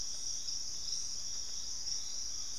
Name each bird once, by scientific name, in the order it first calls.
Trogon collaris